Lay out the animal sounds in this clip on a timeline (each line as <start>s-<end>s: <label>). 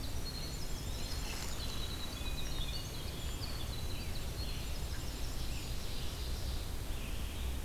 0.0s-6.1s: Winter Wren (Troglodytes hiemalis)
0.0s-7.6s: Red-eyed Vireo (Vireo olivaceus)
0.2s-1.4s: Eastern Wood-Pewee (Contopus virens)
4.4s-6.7s: Ovenbird (Seiurus aurocapilla)